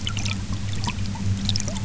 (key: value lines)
label: anthrophony, boat engine
recorder: SoundTrap 300